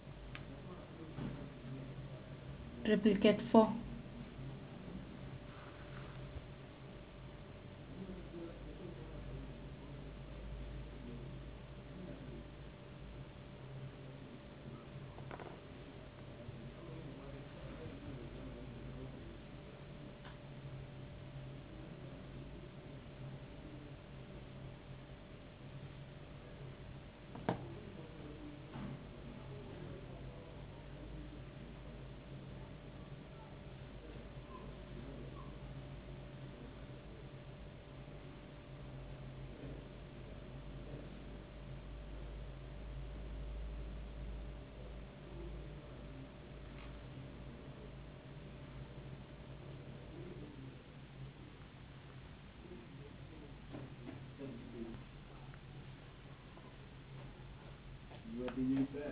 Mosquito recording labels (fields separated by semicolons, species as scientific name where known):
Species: no mosquito; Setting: insect culture